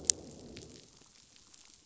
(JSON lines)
{"label": "biophony, growl", "recorder": "SoundTrap 500"}